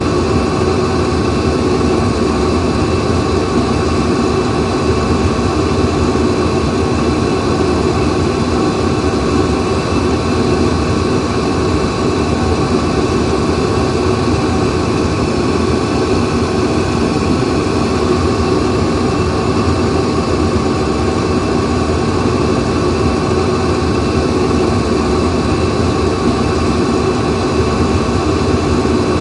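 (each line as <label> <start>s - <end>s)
Gas or diesel combusting, emitting a hissing noise. 0.0s - 29.2s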